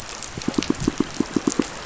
{"label": "biophony, pulse", "recorder": "SoundTrap 500"}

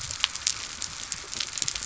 {"label": "biophony", "recorder": "SoundTrap 300"}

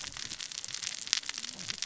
{"label": "biophony, cascading saw", "recorder": "SoundTrap 600 or HydroMoth"}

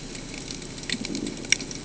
{"label": "ambient", "recorder": "HydroMoth"}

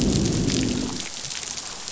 {"label": "biophony, growl", "recorder": "SoundTrap 500"}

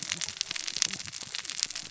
{"label": "biophony, cascading saw", "recorder": "SoundTrap 600 or HydroMoth"}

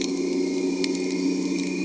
{"label": "anthrophony, boat engine", "recorder": "HydroMoth"}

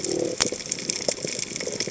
{"label": "biophony", "recorder": "HydroMoth"}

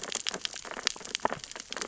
{"label": "biophony, sea urchins (Echinidae)", "recorder": "SoundTrap 600 or HydroMoth"}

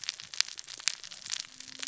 {"label": "biophony, cascading saw", "recorder": "SoundTrap 600 or HydroMoth"}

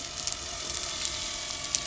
{"label": "anthrophony, boat engine", "recorder": "SoundTrap 300"}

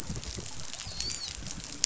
{"label": "biophony, dolphin", "recorder": "SoundTrap 500"}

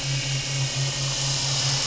{"label": "anthrophony, boat engine", "recorder": "SoundTrap 500"}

